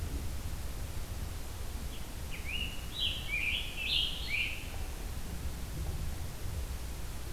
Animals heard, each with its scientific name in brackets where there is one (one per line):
Red-eyed Vireo (Vireo olivaceus)
Scarlet Tanager (Piranga olivacea)